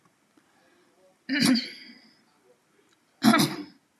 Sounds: Throat clearing